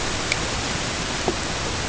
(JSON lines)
{"label": "ambient", "recorder": "HydroMoth"}